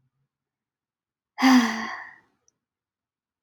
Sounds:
Sigh